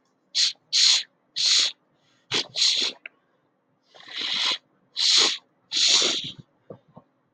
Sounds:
Sniff